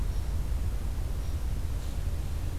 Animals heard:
forest ambience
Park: Acadia National Park